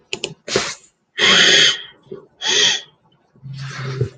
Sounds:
Sniff